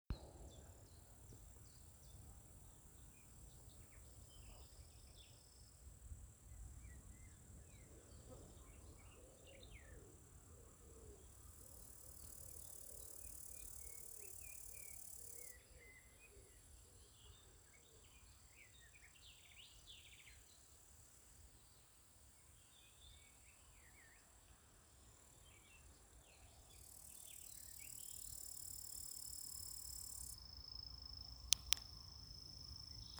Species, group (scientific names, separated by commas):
Tettigonia cantans, Orthoptera